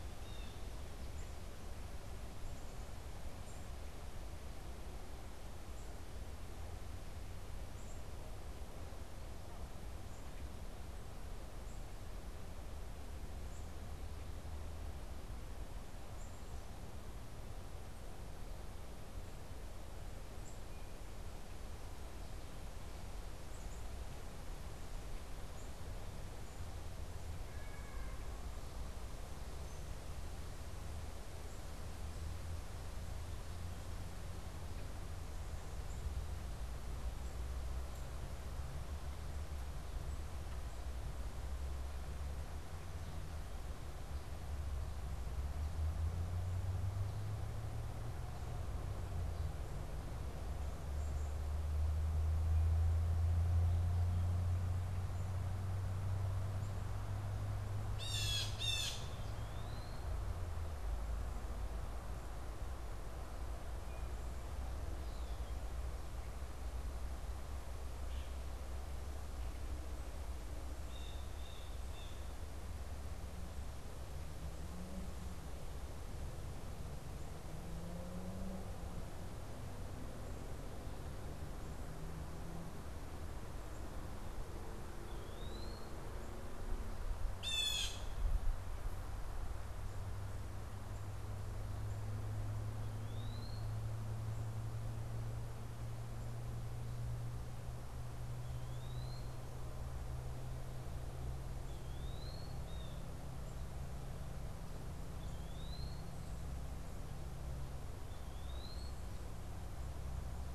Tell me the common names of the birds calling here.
Blue Jay, Black-capped Chickadee, Eastern Wood-Pewee